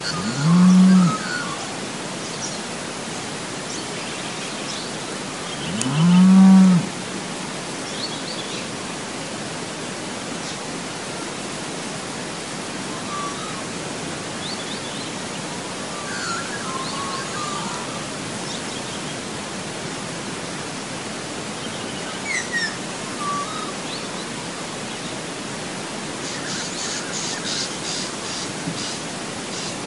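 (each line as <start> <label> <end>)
0.0 A cow moos loudly outdoors near a river with birds in the background. 1.9
2.0 Different bird species chirping repeatedly outdoors near a river. 5.6
5.6 A cow moos loudly outdoors near a river with birds in the background. 7.1
7.2 Different bird species chirping repeatedly outdoors near a river. 29.9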